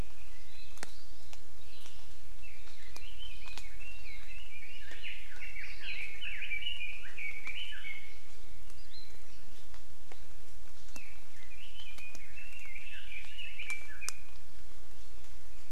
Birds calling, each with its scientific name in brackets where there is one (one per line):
Hawaii Amakihi (Chlorodrepanis virens)
Red-billed Leiothrix (Leiothrix lutea)